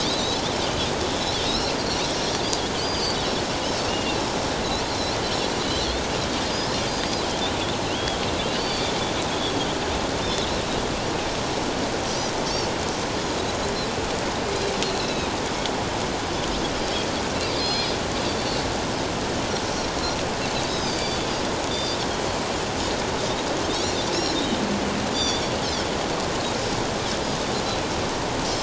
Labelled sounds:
1.5	2.1	Pacific white-sided dolphin, 3.7 to 5.8 kHz
2.8	4.2	Pacific white-sided dolphin, 2.6 to 6.5 kHz
4.9	6.0	Pacific white-sided dolphin, 3.8 to 4.5 kHz
6.9	8.9	Pacific white-sided dolphin, 2.7 to 5.0 kHz
10.2	10.5	Pacific white-sided dolphin, 3.4 to 3.7 kHz
12.0	12.3	Pacific white-sided dolphin, 5.7 to 6.1 kHz
14.8	15.3	Pacific white-sided dolphin, 2.4 to 4.4 kHz
17.6	17.9	Pacific white-sided dolphin, 3.3 to 5.1 kHz
20.7	21.3	Pacific white-sided dolphin, 3.2 to 5.2 kHz
21.7	22.0	Pacific white-sided dolphin, 3.5 to 4.8 kHz
23.7	24.4	Pacific white-sided dolphin, 3.6 to 4.4 kHz
25.1	25.4	Pacific white-sided dolphin, 3.3 to 6.0 kHz

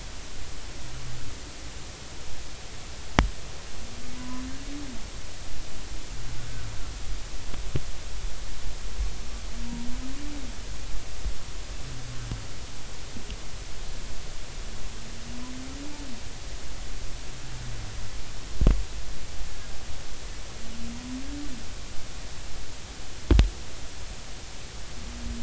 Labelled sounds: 4.1	4.4	humpback whale, 0.90 to 1.1 kHz

